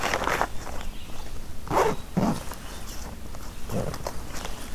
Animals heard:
forest ambience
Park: Marsh-Billings-Rockefeller National Historical Park